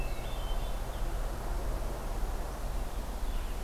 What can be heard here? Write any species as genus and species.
Catharus guttatus, Vireo solitarius